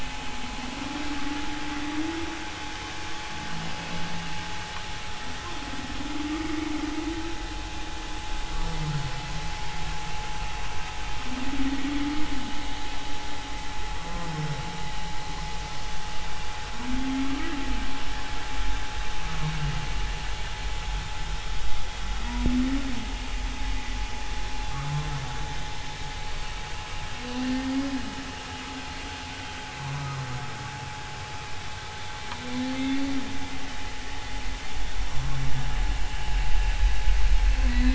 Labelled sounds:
27.4	27.7	humpback whale, 1.8 to 1.9 kHz
32.7	33.0	humpback whale, 2.0 to 2.2 kHz
35.0	35.4	humpback whale, 0.93 to 1.1 kHz
37.7	37.9	humpback whale, 3.8 to 4.1 kHz

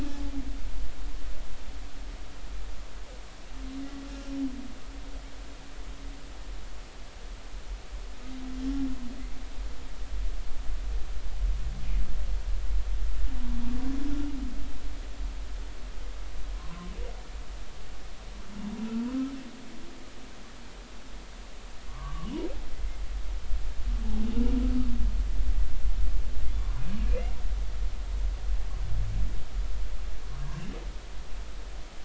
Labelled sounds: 19.1	19.3	humpback whale, 1.2 to 1.4 kHz
21.9	22.3	humpback whale, 0.96 to 1.3 kHz
26.5	27.3	humpback whale, 0.96 to 3.6 kHz

